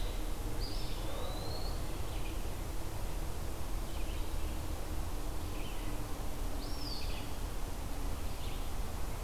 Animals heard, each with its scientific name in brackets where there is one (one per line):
Eastern Wood-Pewee (Contopus virens)
Red-eyed Vireo (Vireo olivaceus)